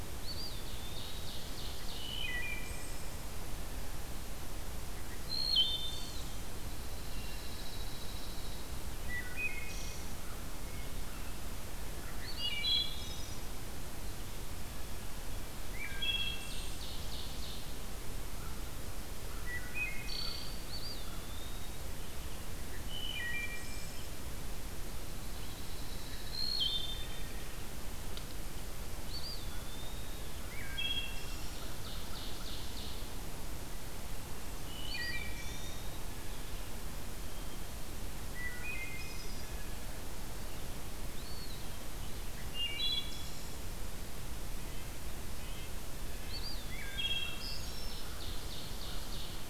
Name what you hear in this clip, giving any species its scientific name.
Contopus virens, Seiurus aurocapilla, Hylocichla mustelina, Setophaga pinus, Corvus brachyrhynchos, Cyanocitta cristata, Sitta canadensis